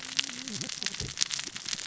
{"label": "biophony, cascading saw", "recorder": "SoundTrap 600 or HydroMoth"}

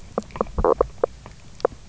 {"label": "biophony, knock croak", "recorder": "SoundTrap 300"}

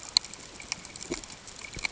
{"label": "ambient", "recorder": "HydroMoth"}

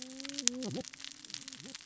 {"label": "biophony, cascading saw", "recorder": "SoundTrap 600 or HydroMoth"}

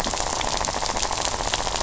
{"label": "biophony, rattle", "recorder": "SoundTrap 500"}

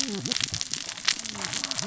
{"label": "biophony, cascading saw", "recorder": "SoundTrap 600 or HydroMoth"}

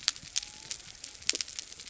{"label": "biophony", "recorder": "SoundTrap 300"}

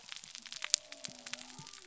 {"label": "biophony", "recorder": "SoundTrap 300"}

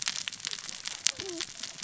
{"label": "biophony, cascading saw", "recorder": "SoundTrap 600 or HydroMoth"}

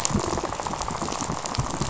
{"label": "biophony, rattle", "recorder": "SoundTrap 500"}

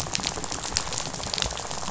{"label": "biophony, rattle", "recorder": "SoundTrap 500"}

